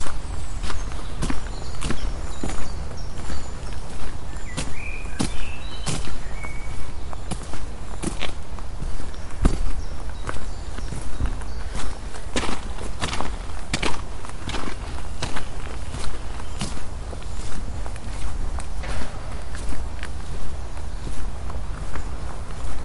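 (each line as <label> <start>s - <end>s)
A faint sound of wind. 0.0s - 22.8s
Footsteps of a person walking quickly outdoors on natural ground. 0.0s - 22.8s
High-pitched bird chirping in the distance. 0.0s - 22.8s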